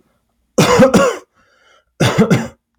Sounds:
Cough